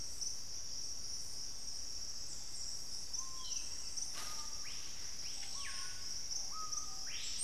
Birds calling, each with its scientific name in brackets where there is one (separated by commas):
Screaming Piha (Lipaugus vociferans)